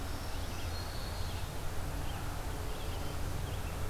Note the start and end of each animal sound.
0.0s-1.4s: Black-throated Green Warbler (Setophaga virens)
0.0s-3.9s: Red-eyed Vireo (Vireo olivaceus)

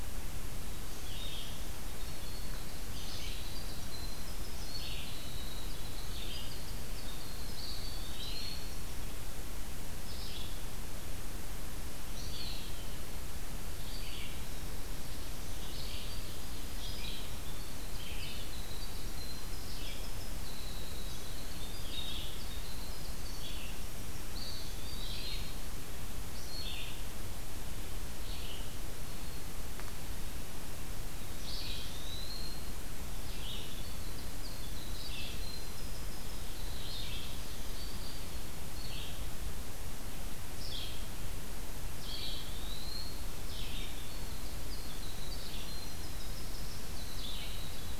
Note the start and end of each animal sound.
0.0s-28.7s: Red-eyed Vireo (Vireo olivaceus)
1.6s-9.0s: Winter Wren (Troglodytes hiemalis)
7.3s-9.0s: Eastern Wood-Pewee (Contopus virens)
12.1s-13.0s: Eastern Wood-Pewee (Contopus virens)
15.6s-25.4s: Winter Wren (Troglodytes hiemalis)
24.0s-25.4s: Black-throated Green Warbler (Setophaga virens)
24.3s-25.7s: Eastern Wood-Pewee (Contopus virens)
31.3s-48.0s: Red-eyed Vireo (Vireo olivaceus)
31.4s-32.9s: Eastern Wood-Pewee (Contopus virens)
33.6s-37.8s: Winter Wren (Troglodytes hiemalis)
37.1s-38.4s: Black-throated Green Warbler (Setophaga virens)
41.8s-43.4s: Eastern Wood-Pewee (Contopus virens)
43.5s-48.0s: Winter Wren (Troglodytes hiemalis)

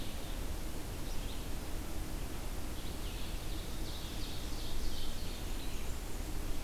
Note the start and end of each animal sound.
0.0s-6.6s: Red-eyed Vireo (Vireo olivaceus)
3.2s-5.7s: Ovenbird (Seiurus aurocapilla)
5.0s-6.3s: Blackburnian Warbler (Setophaga fusca)

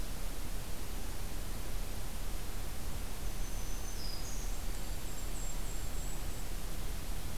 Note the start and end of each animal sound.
3.1s-5.0s: Black-throated Green Warbler (Setophaga virens)
4.3s-6.6s: Golden-crowned Kinglet (Regulus satrapa)

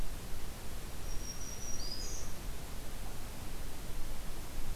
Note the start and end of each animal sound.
0.8s-2.5s: Black-throated Green Warbler (Setophaga virens)

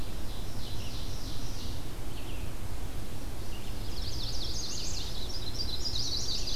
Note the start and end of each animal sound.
0.0s-1.8s: Ovenbird (Seiurus aurocapilla)
0.6s-6.6s: Red-eyed Vireo (Vireo olivaceus)
3.7s-6.6s: Chestnut-sided Warbler (Setophaga pensylvanica)

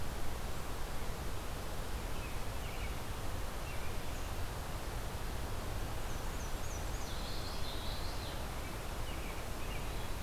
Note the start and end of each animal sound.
2.0s-4.0s: American Robin (Turdus migratorius)
6.0s-7.2s: Black-and-white Warbler (Mniotilta varia)
6.9s-8.5s: Common Yellowthroat (Geothlypis trichas)
7.0s-8.2s: Eastern Wood-Pewee (Contopus virens)
8.4s-10.2s: American Robin (Turdus migratorius)

